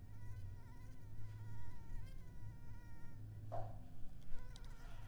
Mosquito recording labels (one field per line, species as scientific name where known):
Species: Anopheles arabiensis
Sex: female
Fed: unfed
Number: one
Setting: cup